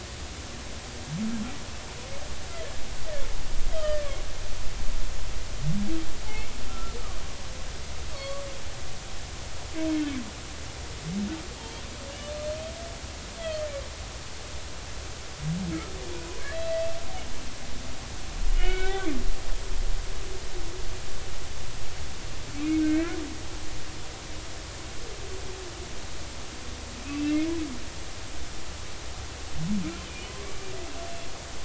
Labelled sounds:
3.7	4.1	humpback whale, 1.7 to 3.3 kHz
6.7	6.9	humpback whale, 1.3 to 1.4 kHz
8.1	8.4	humpback whale, 1.1 to 4.5 kHz
13.4	13.7	humpback whale, 3.0 to 3.4 kHz
16.4	16.8	humpback whale, 1.6 to 4.0 kHz
18.5	19.1	humpback whale, 1.4 to 3.6 kHz
22.8	23.2	humpback whale, 1.5 to 2.5 kHz
27.0	27.5	humpback whale, 2.0 to 2.8 kHz

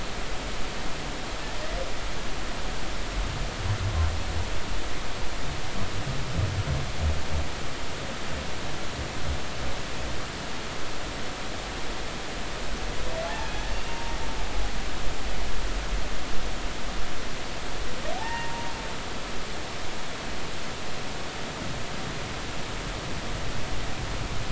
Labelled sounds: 13.2	14.1	humpback whale, 0.80 to 2.9 kHz
18.1	18.6	humpback whale, 0.80 to 1.9 kHz

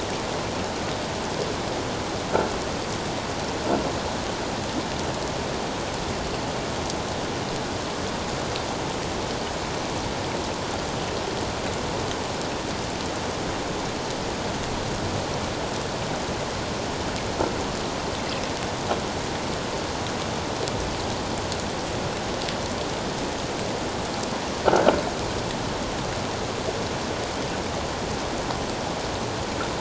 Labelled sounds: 24.6	24.9	croaking sound likely from a nearby submerged object, 1.3 to 1.7 kHz

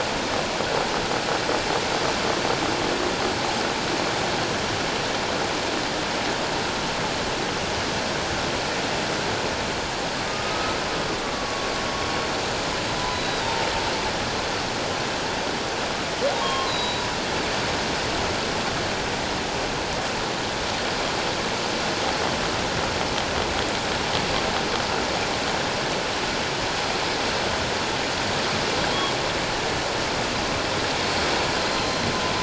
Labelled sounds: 10.3	11.7	humpback whale, 1.1 to 1.3 kHz
13.1	13.7	humpback whale, 0.84 to 4.0 kHz
16.4	17.0	humpback whale, 0.97 to 4.1 kHz
31.7	32.1	humpback whale, 4.1 to 4.2 kHz

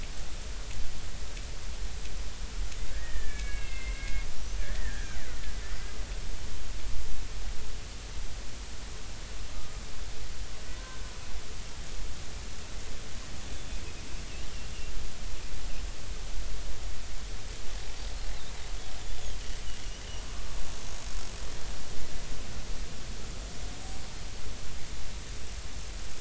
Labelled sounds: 2.9	5.2	killer whale, Bigg's (transient), 1.4 to 6.3 kHz
9.5	9.8	killer whale, Bigg's (transient), 1.2 to 1.3 kHz
10.8	11.0	killer whale, Bigg's (transient), 1.5 to 1.6 kHz
13.5	13.8	killer whale, Bigg's (transient), 3.4 to 3.5 kHz

